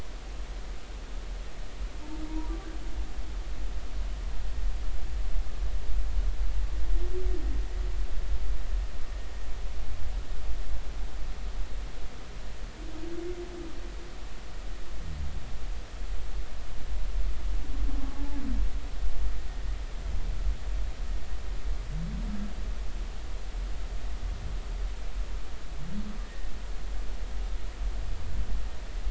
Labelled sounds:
26.3	26.5	humpback whale, 1.8 to 2.0 kHz

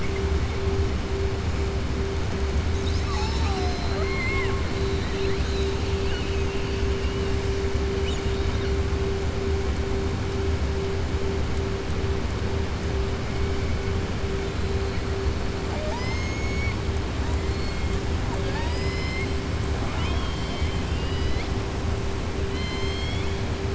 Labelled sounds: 4.9	6.8	killer whale, southern resident, 1.6 to 5.0 kHz
7.9	8.7	killer whale, southern resident, 2.3 to 4.4 kHz
18.3	19.3	killer whale, southern resident, 0.56 to 7.9 kHz
22.4	23.4	killer whale, southern resident, 2.0 to 7.4 kHz

